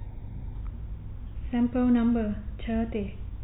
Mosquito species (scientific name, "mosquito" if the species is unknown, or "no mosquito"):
no mosquito